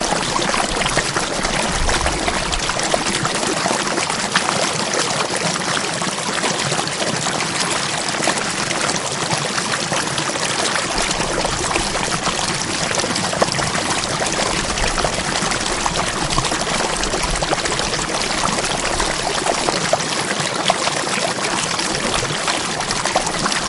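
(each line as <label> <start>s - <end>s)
Water flows loudly in a nearby stream. 0.0s - 23.7s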